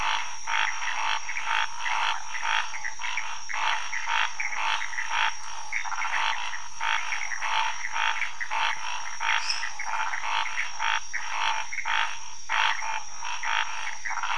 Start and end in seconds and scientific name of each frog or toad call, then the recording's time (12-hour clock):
0.0	14.3	Scinax fuscovarius
9.4	9.7	Dendropsophus minutus
3:15am